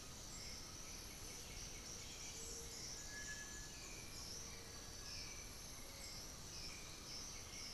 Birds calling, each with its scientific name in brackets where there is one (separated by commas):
Black-billed Thrush (Turdus ignobilis), Cinereous Tinamou (Crypturellus cinereus), Undulated Tinamou (Crypturellus undulatus), Little Tinamou (Crypturellus soui), White-winged Becard (Pachyramphus polychopterus), Great Antshrike (Taraba major)